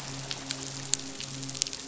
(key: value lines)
label: biophony, midshipman
recorder: SoundTrap 500